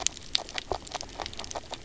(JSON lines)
{"label": "biophony, knock croak", "recorder": "SoundTrap 300"}